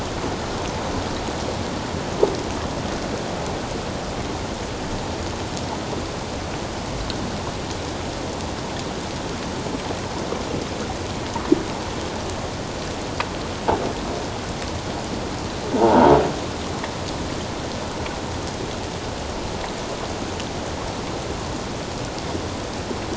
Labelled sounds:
15.7	16.1	croaking sound likely from a nearby submerged object, 0.78 to 1.0 kHz

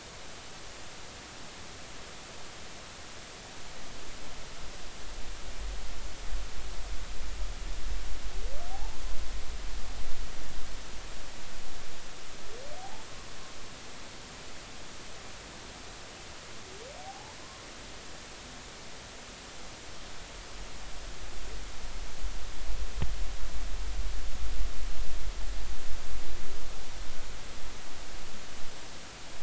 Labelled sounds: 8.7	9.0	humpback whale, 0.80 to 0.93 kHz
12.8	13.0	humpback whale, 0.80 to 0.93 kHz
17.0	17.4	humpback whale, 0.80 to 1.0 kHz

